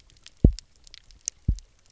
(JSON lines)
{"label": "biophony, double pulse", "recorder": "SoundTrap 300"}